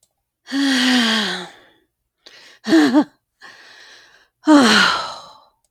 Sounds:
Sigh